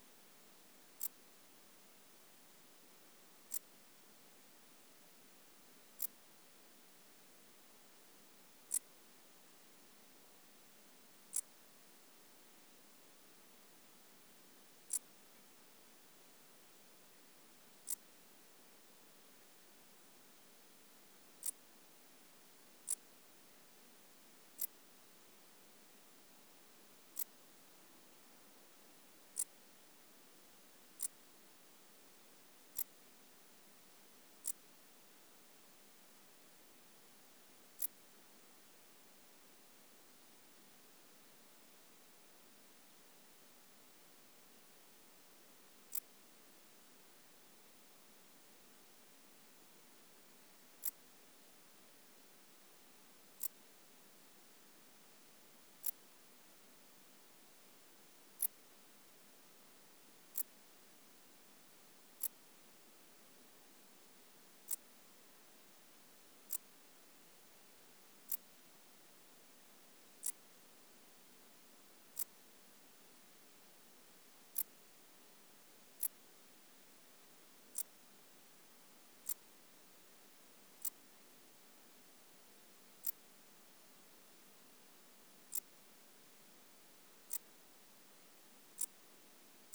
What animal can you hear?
Pholidoptera griseoaptera, an orthopteran